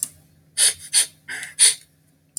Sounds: Sniff